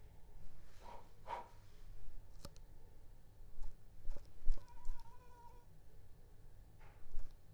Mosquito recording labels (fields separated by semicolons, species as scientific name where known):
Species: Anopheles arabiensis; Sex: female; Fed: unfed; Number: one; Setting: cup